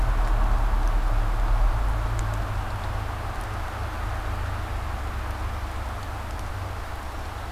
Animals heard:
forest ambience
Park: Marsh-Billings-Rockefeller National Historical Park